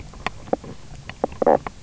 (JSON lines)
{"label": "biophony, knock croak", "recorder": "SoundTrap 300"}